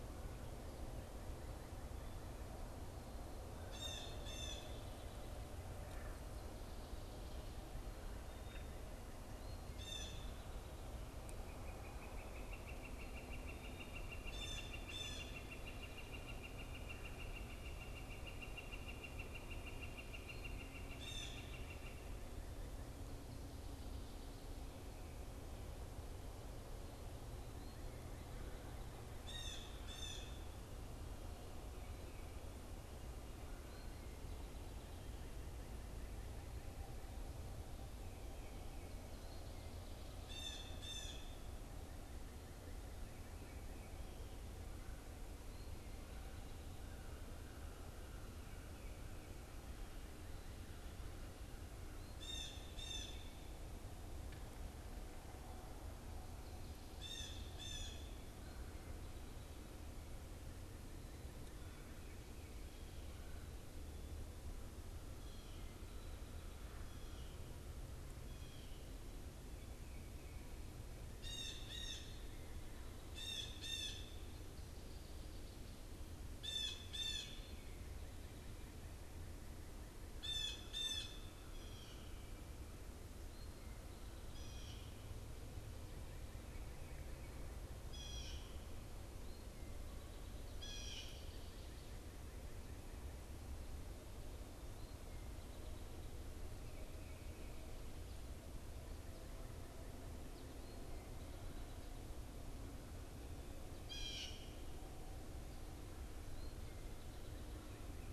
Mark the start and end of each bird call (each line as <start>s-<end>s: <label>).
3.7s-4.9s: Blue Jay (Cyanocitta cristata)
9.6s-10.3s: Blue Jay (Cyanocitta cristata)
11.4s-22.2s: Northern Flicker (Colaptes auratus)
14.2s-15.4s: Blue Jay (Cyanocitta cristata)
21.0s-21.7s: Blue Jay (Cyanocitta cristata)
29.2s-30.6s: Blue Jay (Cyanocitta cristata)
40.2s-41.3s: Blue Jay (Cyanocitta cristata)
52.1s-53.4s: Blue Jay (Cyanocitta cristata)
56.9s-58.2s: Blue Jay (Cyanocitta cristata)
71.1s-77.4s: Blue Jay (Cyanocitta cristata)
80.1s-81.2s: Blue Jay (Cyanocitta cristata)
81.5s-91.4s: Blue Jay (Cyanocitta cristata)
103.9s-104.5s: Blue Jay (Cyanocitta cristata)